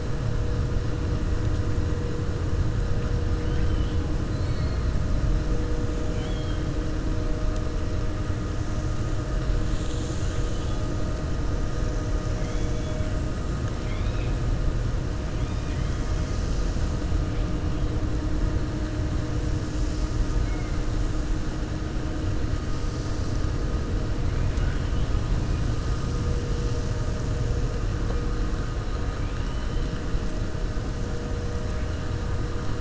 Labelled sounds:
6.0	6.6	killer whale, 1.4 to 4.3 kHz
12.3	13.1	killer whale, 2.0 to 3.5 kHz
13.7	14.4	killer whale, 1.5 to 3.9 kHz

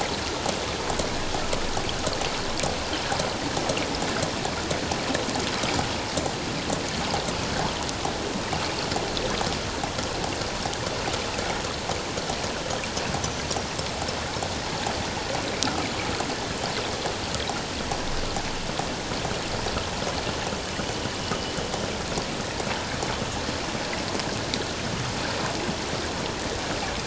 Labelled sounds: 13.2	13.4	killer whale, 5.8 to 6.2 kHz

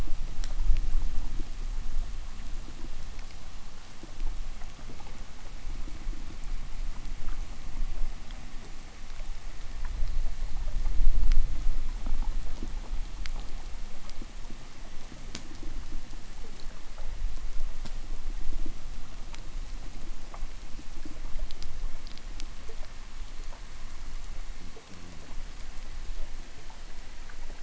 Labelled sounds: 24.5	25.7	fish, 0 to 0.68 kHz

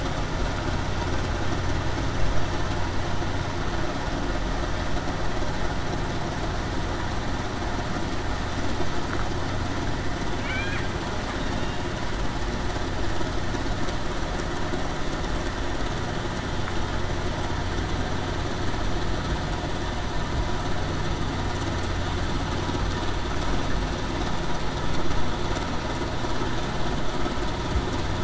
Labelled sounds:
10.4	10.8	killer whale, Bigg's (transient), 2.1 to 2.5 kHz

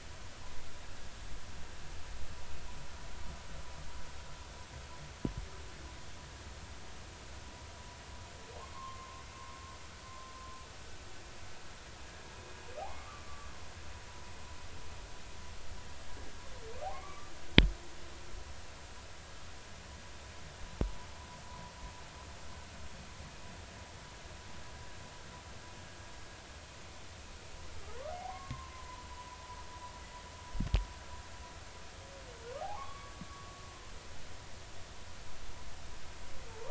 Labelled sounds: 8.6	9.2	humpback whale, 0.99 to 1.2 kHz
12.8	13.5	humpback whale, 0.80 to 1.3 kHz
16.9	17.3	humpback whale, 0.96 to 2.4 kHz
28.3	29.0	humpback whale, 0.93 to 1.2 kHz
32.6	33.1	humpback whale, 0.80 to 1.2 kHz

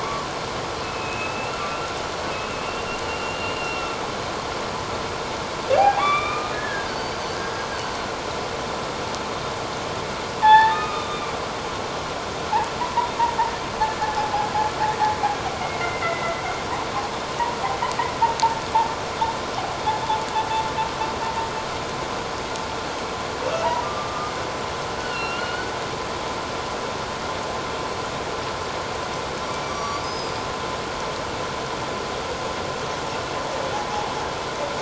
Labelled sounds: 0.8	1.6	humpback whale, 2.5 to 2.8 kHz
2.6	3.9	humpback whale, 2.7 to 2.8 kHz
5.8	7.2	humpback whale, 0.78 to 4.8 kHz
10.4	11.3	humpback whale, 0.78 to 3.8 kHz
12.8	13.1	humpback whale, 0.88 to 1.1 kHz
15.6	16.4	humpback whale, 1.9 to 2.2 kHz
23.8	24.3	humpback whale, 1.1 to 1.3 kHz
25.0	25.7	humpback whale, 1.3 to 3.0 kHz
29.6	30.4	humpback whale, 1.1 to 5.9 kHz

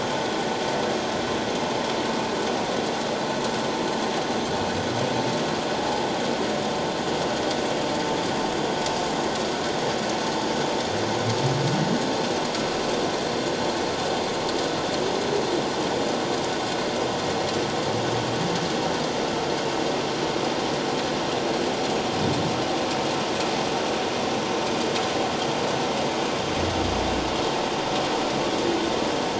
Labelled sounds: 5.8	6.0	humpback whale, 0.81 to 0.91 kHz

